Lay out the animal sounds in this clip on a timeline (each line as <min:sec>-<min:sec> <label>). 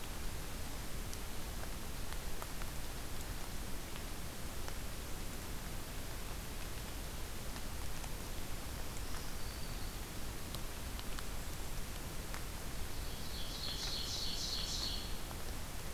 0:08.5-0:10.0 Black-throated Green Warbler (Setophaga virens)
0:11.2-0:11.8 Golden-crowned Kinglet (Regulus satrapa)
0:13.0-0:15.1 Ovenbird (Seiurus aurocapilla)